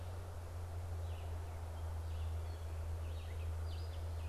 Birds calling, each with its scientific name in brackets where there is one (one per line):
Gray Catbird (Dumetella carolinensis)
Red-eyed Vireo (Vireo olivaceus)